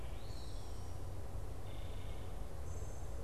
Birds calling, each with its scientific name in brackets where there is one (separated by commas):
Eastern Wood-Pewee (Contopus virens), Wood Thrush (Hylocichla mustelina)